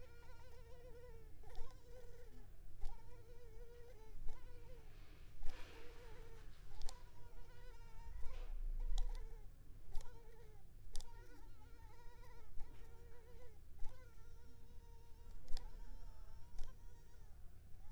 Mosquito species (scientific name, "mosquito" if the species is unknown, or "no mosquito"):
Culex pipiens complex